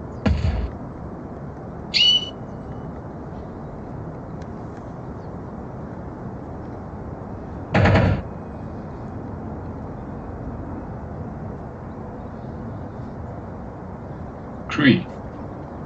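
A steady background noise continues. First at 0.23 seconds, fireworks can be heard. Then at 1.91 seconds, chirping is heard. Later, at 7.74 seconds, you can hear gunfire. After that, at 14.71 seconds, a voice says "three".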